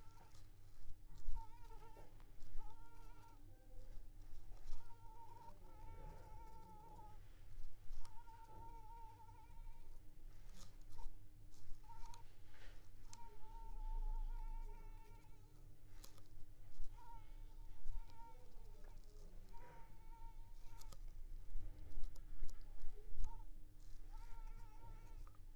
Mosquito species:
Culex pipiens complex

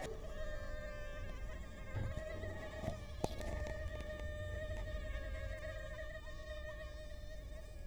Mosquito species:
Culex quinquefasciatus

